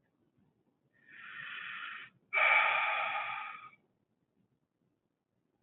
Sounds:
Sigh